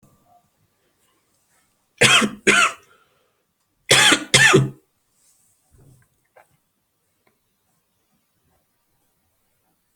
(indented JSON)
{
  "expert_labels": [
    {
      "quality": "good",
      "cough_type": "dry",
      "dyspnea": false,
      "wheezing": false,
      "stridor": false,
      "choking": false,
      "congestion": false,
      "nothing": true,
      "diagnosis": "upper respiratory tract infection",
      "severity": "mild"
    }
  ],
  "age": 26,
  "gender": "male",
  "respiratory_condition": false,
  "fever_muscle_pain": true,
  "status": "symptomatic"
}